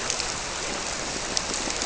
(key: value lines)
label: biophony
recorder: SoundTrap 300